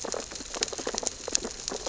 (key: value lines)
label: biophony, sea urchins (Echinidae)
recorder: SoundTrap 600 or HydroMoth